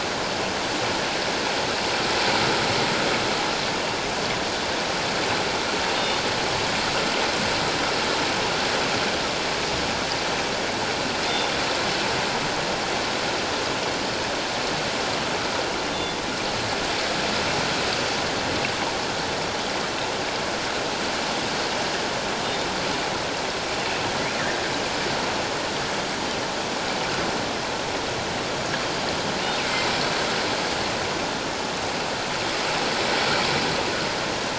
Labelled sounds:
6.0	6.2	killer whale, northern resident, G clan, 3.5 to 3.7 kHz
15.9	16.2	killer whale, northern resident, G clan, 3.3 to 3.7 kHz
23.8	24.1	killer whale, northern resident, G clan, 2.5 to 2.9 kHz
29.6	29.9	killer whale, northern resident, G clan, 2.0 to 2.8 kHz

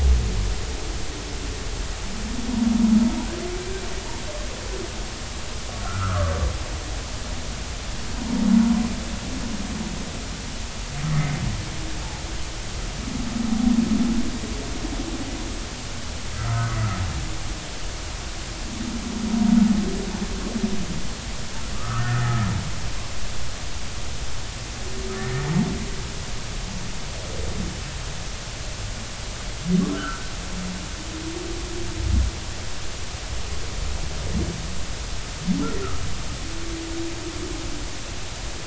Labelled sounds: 5.8	6.4	humpback whale, 1.1 to 1.6 kHz
16.4	16.8	humpback whale, 1.2 to 1.5 kHz
21.7	22.2	humpback whale, 1.1 to 1.6 kHz
29.9	30.3	humpback whale, 1.3 to 1.6 kHz

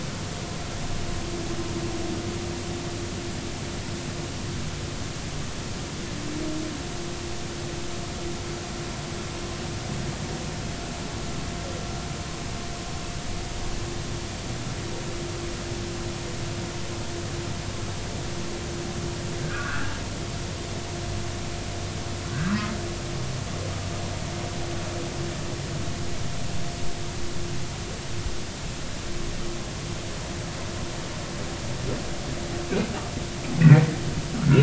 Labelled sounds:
19.4	19.9	humpback whale, 1.1 to 1.8 kHz
34.4	34.6	humpback whale, 1.2 to 1.5 kHz

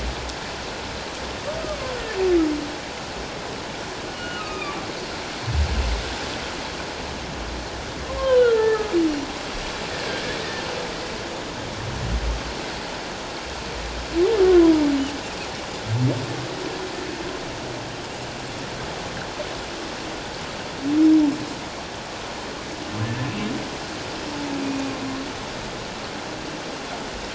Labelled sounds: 1.6	2.0	humpback whale, 0.97 to 1.3 kHz
4.2	4.9	humpback whale, 1.1 to 4.4 kHz
8.2	8.9	humpback whale, 0.97 to 3.2 kHz
9.9	10.2	humpback whale, 1.5 to 1.9 kHz
14.4	14.7	humpback whale, 0.97 to 1.2 kHz
24.6	24.9	humpback whale, 2.4 to 2.6 kHz

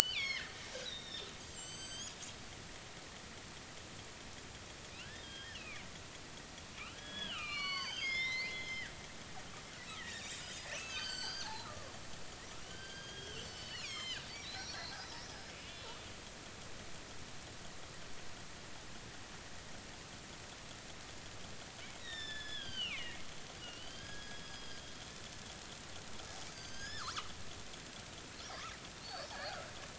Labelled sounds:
0.2	0.5	killer whale, northern resident, G clan, 2.8 to 6.8 kHz
0.8	2.2	killer whale, northern resident, G clan, 1.5 to 8.0 kHz
5.0	5.9	killer whale, northern resident, G clan, 1.3 to 3.4 kHz
6.9	11.7	killer whale, northern resident, G clan, 0.80 to 8.0 kHz
12.6	14.8	killer whale, northern resident, G clan, 1.3 to 7.9 kHz
15.3	16.1	killer whale, northern resident, G clan, 2.1 to 5.2 kHz
22.0	23.2	killer whale, northern resident, G clan, 1.5 to 5.8 kHz
23.6	24.8	killer whale, northern resident, G clan, 1.4 to 5.1 kHz
26.5	27.3	killer whale, northern resident, G clan, 0.96 to 6.9 kHz
29.3	29.7	killer whale, northern resident, G clan, 1.3 to 1.9 kHz

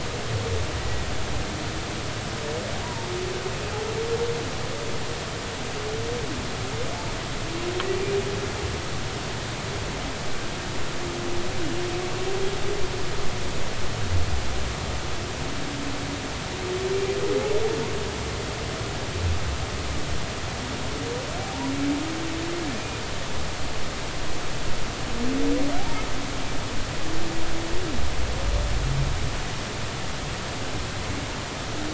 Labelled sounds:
2.8	3.1	humpback whale, 0.86 to 1.0 kHz
21.4	21.7	humpback whale, 0.80 to 1.0 kHz
22.7	23.0	humpback whale, 2.4 to 2.5 kHz

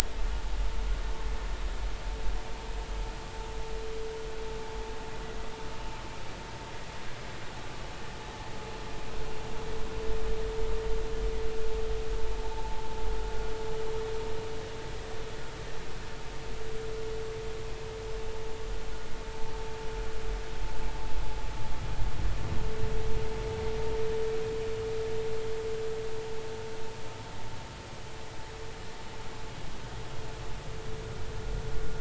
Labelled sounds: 12.5	12.8	vessel noise, 0.80 to 0.96 kHz

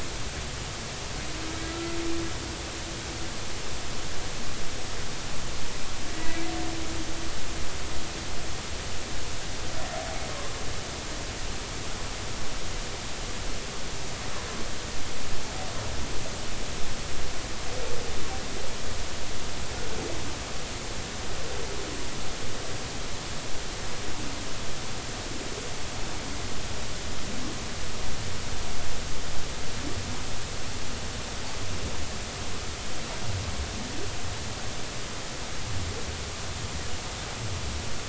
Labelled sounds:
1.7	2.0	humpback whale, 1.3 to 1.4 kHz
6.1	6.4	humpback whale, 1.9 to 2.0 kHz
19.7	20.0	humpback whale, 1.4 to 1.5 kHz

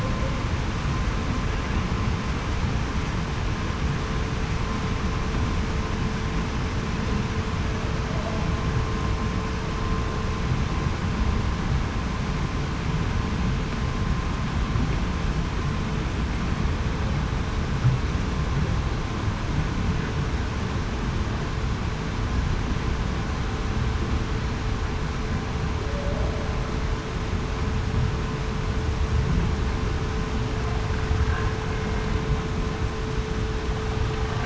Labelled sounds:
25.8	26.3	humpback whale, 0.54 to 0.68 kHz

